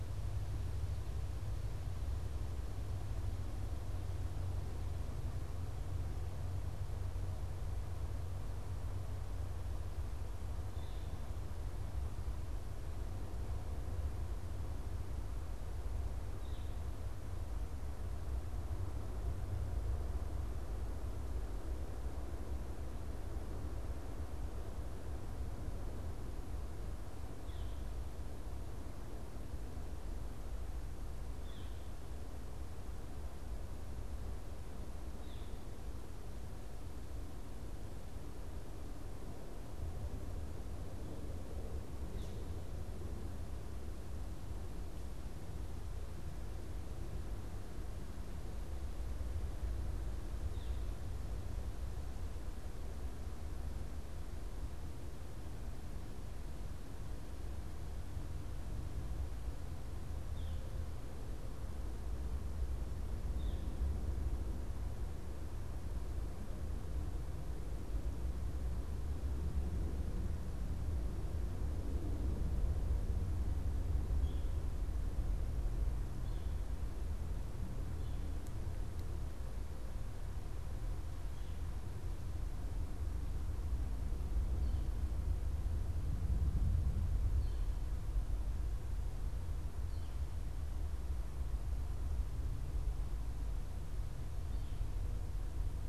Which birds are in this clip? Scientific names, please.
unidentified bird, Colaptes auratus